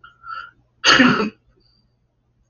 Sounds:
Sneeze